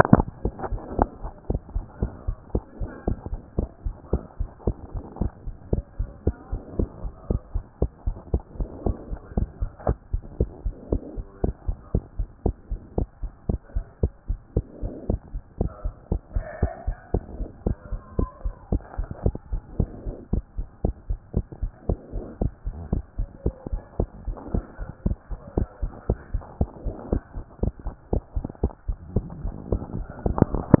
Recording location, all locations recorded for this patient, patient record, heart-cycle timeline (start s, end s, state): pulmonary valve (PV)
aortic valve (AV)+pulmonary valve (PV)+tricuspid valve (TV)+mitral valve (MV)
#Age: Child
#Sex: Female
#Height: 111.0 cm
#Weight: 18.5 kg
#Pregnancy status: False
#Murmur: Absent
#Murmur locations: nan
#Most audible location: nan
#Systolic murmur timing: nan
#Systolic murmur shape: nan
#Systolic murmur grading: nan
#Systolic murmur pitch: nan
#Systolic murmur quality: nan
#Diastolic murmur timing: nan
#Diastolic murmur shape: nan
#Diastolic murmur grading: nan
#Diastolic murmur pitch: nan
#Diastolic murmur quality: nan
#Outcome: Normal
#Campaign: 2014 screening campaign
0.00	0.10	systole
0.10	0.26	S2
0.26	0.42	diastole
0.42	0.54	S1
0.54	0.68	systole
0.68	0.82	S2
0.82	0.96	diastole
0.96	1.12	S1
1.12	1.24	systole
1.24	1.32	S2
1.32	1.46	diastole
1.46	1.62	S1
1.62	1.72	systole
1.72	1.86	S2
1.86	2.00	diastole
2.00	2.12	S1
2.12	2.24	systole
2.24	2.38	S2
2.38	2.54	diastole
2.54	2.64	S1
2.64	2.78	systole
2.78	2.90	S2
2.90	3.04	diastole
3.04	3.18	S1
3.18	3.30	systole
3.30	3.40	S2
3.40	3.54	diastole
3.54	3.70	S1
3.70	3.82	systole
3.82	3.96	S2
3.96	4.10	diastole
4.10	4.24	S1
4.24	4.40	systole
4.40	4.50	S2
4.50	4.64	diastole
4.64	4.76	S1
4.76	4.94	systole
4.94	5.04	S2
5.04	5.18	diastole
5.18	5.32	S1
5.32	5.44	systole
5.44	5.54	S2
5.54	5.70	diastole
5.70	5.84	S1
5.84	5.96	systole
5.96	6.10	S2
6.10	6.24	diastole
6.24	6.38	S1
6.38	6.50	systole
6.50	6.60	S2
6.60	6.76	diastole
6.76	6.90	S1
6.90	7.02	systole
7.02	7.12	S2
7.12	7.28	diastole
7.28	7.42	S1
7.42	7.52	systole
7.52	7.66	S2
7.66	7.80	diastole
7.80	7.90	S1
7.90	8.04	systole
8.04	8.18	S2
8.18	8.30	diastole
8.30	8.42	S1
8.42	8.56	systole
8.56	8.68	S2
8.68	8.82	diastole
8.82	9.00	S1
9.00	9.10	systole
9.10	9.20	S2
9.20	9.34	diastole
9.34	9.48	S1
9.48	9.58	systole
9.58	9.72	S2
9.72	9.86	diastole
9.86	9.98	S1
9.98	10.10	systole
10.10	10.22	S2
10.22	10.38	diastole
10.38	10.52	S1
10.52	10.62	systole
10.62	10.74	S2
10.74	10.88	diastole
10.88	11.02	S1
11.02	11.16	systole
11.16	11.26	S2
11.26	11.40	diastole
11.40	11.54	S1
11.54	11.66	systole
11.66	11.76	S2
11.76	11.92	diastole
11.92	12.04	S1
12.04	12.16	systole
12.16	12.30	S2
12.30	12.42	diastole
12.42	12.56	S1
12.56	12.70	systole
12.70	12.80	S2
12.80	12.94	diastole
12.94	13.08	S1
13.08	13.22	systole
13.22	13.32	S2
13.32	13.46	diastole
13.46	13.60	S1
13.60	13.74	systole
13.74	13.84	S2
13.84	14.00	diastole
14.00	14.12	S1
14.12	14.26	systole
14.26	14.40	S2
14.40	14.54	diastole
14.54	14.64	S1
14.64	14.80	systole
14.80	14.92	S2
14.92	15.06	diastole
15.06	15.20	S1
15.20	15.32	systole
15.32	15.42	S2
15.42	15.58	diastole
15.58	15.72	S1
15.72	15.82	systole
15.82	15.92	S2
15.92	16.08	diastole
16.08	16.22	S1
16.22	16.34	systole
16.34	16.44	S2
16.44	16.60	diastole
16.60	16.72	S1
16.72	16.86	systole
16.86	16.96	S2
16.96	17.12	diastole
17.12	17.24	S1
17.24	17.38	systole
17.38	17.48	S2
17.48	17.64	diastole
17.64	17.78	S1
17.78	17.90	systole
17.90	18.00	S2
18.00	18.16	diastole
18.16	18.30	S1
18.30	18.44	systole
18.44	18.54	S2
18.54	18.68	diastole
18.68	18.82	S1
18.82	18.96	systole
18.96	19.10	S2
19.10	19.22	diastole
19.22	19.36	S1
19.36	19.50	systole
19.50	19.64	S2
19.64	19.76	diastole
19.76	19.90	S1
19.90	20.04	systole
20.04	20.16	S2
20.16	20.30	diastole
20.30	20.44	S1
20.44	20.56	systole
20.56	20.66	S2
20.66	20.82	diastole
20.82	20.96	S1
20.96	21.08	systole
21.08	21.18	S2
21.18	21.34	diastole
21.34	21.44	S1
21.44	21.60	systole
21.60	21.70	S2
21.70	21.86	diastole
21.86	22.00	S1
22.00	22.14	systole
22.14	22.26	S2
22.26	22.40	diastole
22.40	22.52	S1
22.52	22.64	systole
22.64	22.74	S2
22.74	22.90	diastole
22.90	23.04	S1
23.04	23.18	systole
23.18	23.30	S2
23.30	23.44	diastole
23.44	23.54	S1
23.54	23.66	systole
23.66	23.80	S2
23.80	23.96	diastole
23.96	24.10	S1
24.10	24.26	systole
24.26	24.36	S2
24.36	24.52	diastole
24.52	24.64	S1
24.64	24.80	systole
24.80	24.88	S2
24.88	25.04	diastole
25.04	25.18	S1
25.18	25.32	systole
25.32	25.40	S2
25.40	25.54	diastole
25.54	25.68	S1
25.68	25.80	systole
25.80	25.94	S2
25.94	26.10	diastole
26.10	26.20	S1
26.20	26.32	systole
26.32	26.42	S2
26.42	26.58	diastole
26.58	26.70	S1
26.70	26.84	systole
26.84	26.94	S2
26.94	27.10	diastole
27.10	27.22	S1
27.22	27.34	systole
27.34	27.44	S2
27.44	27.60	diastole
27.60	27.74	S1
27.74	27.84	systole
27.84	27.94	S2
27.94	28.10	diastole
28.10	28.24	S1
28.24	28.34	systole
28.34	28.46	S2
28.46	28.62	diastole
28.62	28.72	S1
28.72	28.88	systole
28.88	28.98	S2
28.98	29.14	diastole
29.14	29.30	S1
29.30	29.42	systole
29.42	29.56	S2
29.56	29.70	diastole
29.70	29.82	S1
29.82	29.94	systole
29.94	30.08	S2
30.08	30.28	diastole
30.28	30.46	S1
30.46	30.66	systole
30.66	30.80	S2